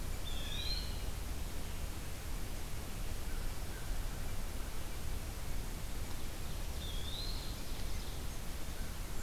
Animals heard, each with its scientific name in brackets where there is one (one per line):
Blue Jay (Cyanocitta cristata)
unidentified call
Ovenbird (Seiurus aurocapilla)
American Crow (Corvus brachyrhynchos)
Eastern Wood-Pewee (Contopus virens)